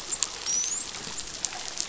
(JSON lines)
{"label": "biophony, dolphin", "recorder": "SoundTrap 500"}